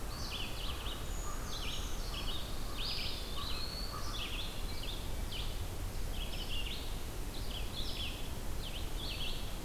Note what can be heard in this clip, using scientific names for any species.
Corvus brachyrhynchos, Vireo olivaceus, Certhia americana, Setophaga pinus, Contopus virens